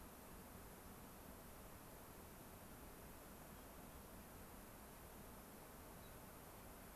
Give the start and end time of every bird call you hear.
5.9s-6.2s: unidentified bird

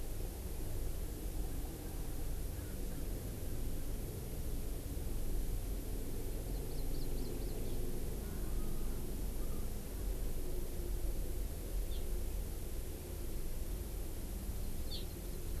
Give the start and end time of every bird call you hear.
6.4s-7.8s: Hawaii Amakihi (Chlorodrepanis virens)
14.9s-15.0s: Hawaii Amakihi (Chlorodrepanis virens)

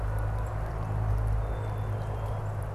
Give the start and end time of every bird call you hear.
1.3s-2.7s: Black-capped Chickadee (Poecile atricapillus)

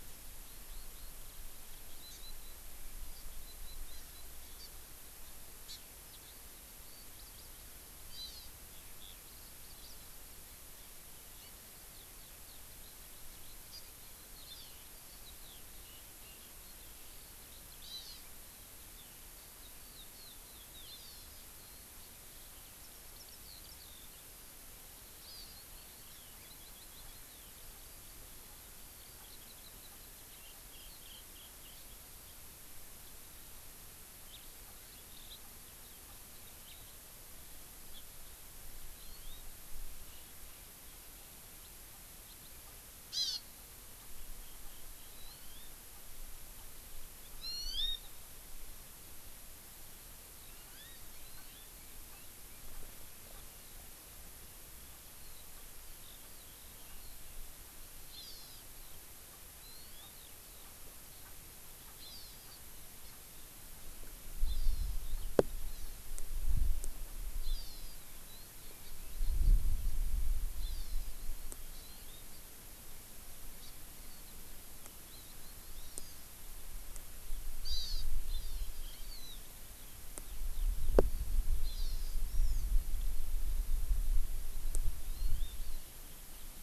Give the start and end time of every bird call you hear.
0.5s-4.2s: Eurasian Skylark (Alauda arvensis)
2.1s-2.2s: Hawaii Amakihi (Chlorodrepanis virens)
3.1s-3.2s: Hawaii Amakihi (Chlorodrepanis virens)
3.9s-4.1s: Hawaii Amakihi (Chlorodrepanis virens)
4.6s-4.7s: Hawaii Amakihi (Chlorodrepanis virens)
5.2s-5.3s: Hawaii Amakihi (Chlorodrepanis virens)
5.6s-5.8s: Hawaii Amakihi (Chlorodrepanis virens)
6.1s-6.4s: Eurasian Skylark (Alauda arvensis)
6.8s-7.0s: Hawaii Amakihi (Chlorodrepanis virens)
7.2s-7.5s: Eurasian Skylark (Alauda arvensis)
8.1s-8.5s: Hawaii Amakihi (Chlorodrepanis virens)
8.7s-24.2s: Eurasian Skylark (Alauda arvensis)
13.7s-13.8s: Hawaii Amakihi (Chlorodrepanis virens)
14.4s-14.7s: Hawaii Amakihi (Chlorodrepanis virens)
17.8s-18.2s: Hawaii Amakihi (Chlorodrepanis virens)
20.8s-21.4s: Hawaii Amakihi (Chlorodrepanis virens)
25.2s-25.6s: Hawaii Amakihi (Chlorodrepanis virens)
25.7s-32.3s: Eurasian Skylark (Alauda arvensis)
34.3s-36.9s: Eurasian Skylark (Alauda arvensis)
37.9s-38.0s: Hawaii Amakihi (Chlorodrepanis virens)
38.9s-39.4s: Hawaii Amakihi (Chlorodrepanis virens)
41.6s-41.7s: House Finch (Haemorhous mexicanus)
42.2s-42.5s: House Finch (Haemorhous mexicanus)
43.1s-43.4s: Hawaii Amakihi (Chlorodrepanis virens)
45.1s-45.7s: Hawaii Amakihi (Chlorodrepanis virens)
47.4s-48.1s: Hawaii Amakihi (Chlorodrepanis virens)
50.4s-50.9s: Hawaii Amakihi (Chlorodrepanis virens)
51.3s-51.7s: Hawaii Amakihi (Chlorodrepanis virens)
55.1s-55.4s: Eurasian Skylark (Alauda arvensis)
56.0s-57.1s: Eurasian Skylark (Alauda arvensis)
58.1s-58.6s: Hawaii Amakihi (Chlorodrepanis virens)
58.7s-58.9s: Eurasian Skylark (Alauda arvensis)
59.6s-60.1s: Hawaii Amakihi (Chlorodrepanis virens)
60.1s-60.6s: Eurasian Skylark (Alauda arvensis)
62.0s-62.6s: Hawaii Amakihi (Chlorodrepanis virens)
63.0s-63.1s: Hawaii Amakihi (Chlorodrepanis virens)
64.4s-65.2s: Hawaii Amakihi (Chlorodrepanis virens)
65.7s-65.9s: Hawaii Amakihi (Chlorodrepanis virens)
67.4s-67.9s: Hawaii Amakihi (Chlorodrepanis virens)
70.6s-71.1s: Hawaii Amakihi (Chlorodrepanis virens)
71.7s-72.4s: Hawaii Amakihi (Chlorodrepanis virens)
73.6s-73.7s: Hawaii Amakihi (Chlorodrepanis virens)
75.1s-75.3s: Hawaii Amakihi (Chlorodrepanis virens)
75.7s-76.1s: Hawaii Amakihi (Chlorodrepanis virens)
77.6s-78.0s: Hawaii Amakihi (Chlorodrepanis virens)
78.3s-79.4s: Hawaii Amakihi (Chlorodrepanis virens)
80.2s-81.2s: Eurasian Skylark (Alauda arvensis)
81.6s-82.6s: Hawaii Amakihi (Chlorodrepanis virens)
85.0s-85.5s: Hawaii Amakihi (Chlorodrepanis virens)

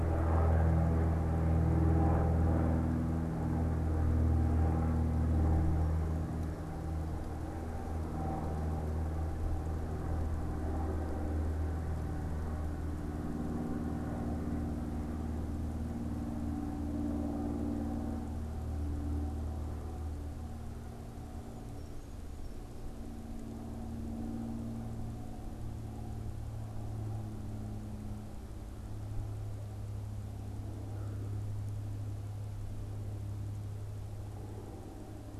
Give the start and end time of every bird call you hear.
21.3s-22.8s: unidentified bird
30.7s-31.6s: American Crow (Corvus brachyrhynchos)

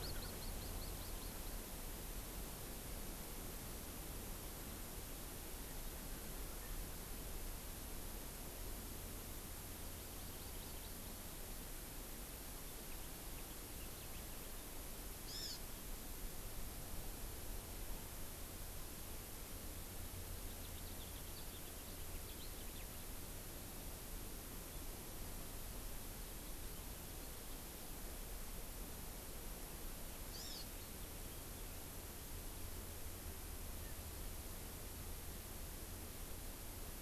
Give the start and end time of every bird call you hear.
9.7s-11.4s: Hawaii Amakihi (Chlorodrepanis virens)
15.2s-15.7s: Hawaii Amakihi (Chlorodrepanis virens)
20.3s-23.1s: House Finch (Haemorhous mexicanus)
30.3s-30.7s: Hawaii Amakihi (Chlorodrepanis virens)

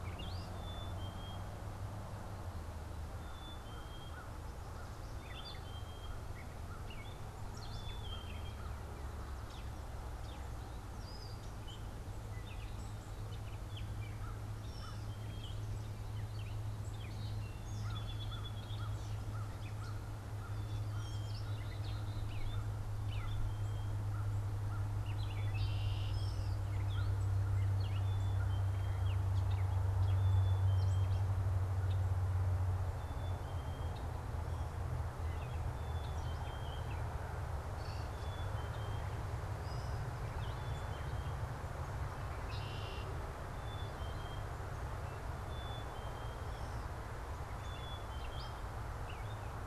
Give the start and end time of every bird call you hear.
0.0s-8.7s: Black-capped Chickadee (Poecile atricapillus)
0.0s-22.8s: Gray Catbird (Dumetella carolinensis)
14.1s-21.2s: American Crow (Corvus brachyrhynchos)
16.7s-19.3s: Song Sparrow (Melospiza melodia)
20.7s-22.6s: Black-capped Chickadee (Poecile atricapillus)
23.0s-49.7s: Black-capped Chickadee (Poecile atricapillus)
24.8s-37.1s: Gray Catbird (Dumetella carolinensis)
25.0s-26.2s: Red-winged Blackbird (Agelaius phoeniceus)
37.6s-49.5s: Gray Catbird (Dumetella carolinensis)
42.1s-43.4s: Red-winged Blackbird (Agelaius phoeniceus)

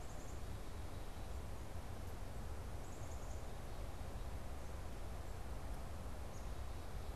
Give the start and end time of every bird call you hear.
0.0s-3.5s: Black-capped Chickadee (Poecile atricapillus)

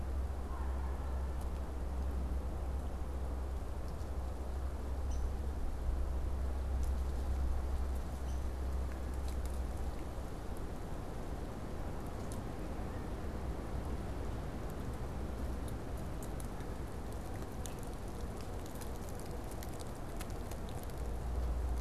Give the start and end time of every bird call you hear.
5.0s-5.4s: Downy Woodpecker (Dryobates pubescens)
8.2s-8.6s: Downy Woodpecker (Dryobates pubescens)

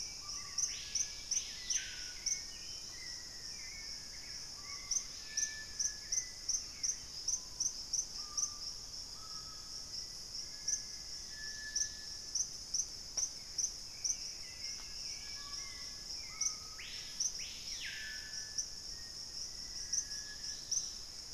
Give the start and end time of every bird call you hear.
0.0s-7.4s: Hauxwell's Thrush (Turdus hauxwelli)
0.0s-21.3s: Screaming Piha (Lipaugus vociferans)
2.2s-4.7s: Black-faced Antthrush (Formicarius analis)
2.8s-3.1s: unidentified bird
4.7s-6.1s: Dusky-capped Greenlet (Pachysylvia hypoxantha)
9.7s-12.2s: Black-faced Antthrush (Formicarius analis)
10.9s-21.3s: Dusky-capped Greenlet (Pachysylvia hypoxantha)
13.7s-15.4s: Black-capped Becard (Pachyramphus marginatus)
18.8s-20.8s: Black-faced Antthrush (Formicarius analis)
20.2s-21.3s: Gray Antbird (Cercomacra cinerascens)

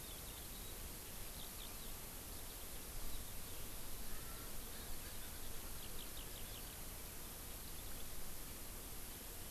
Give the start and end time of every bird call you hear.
0.0s-6.9s: Eurasian Skylark (Alauda arvensis)
4.1s-5.8s: Erckel's Francolin (Pternistis erckelii)

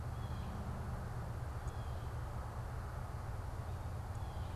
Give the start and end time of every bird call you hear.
0.0s-4.6s: Blue Jay (Cyanocitta cristata)

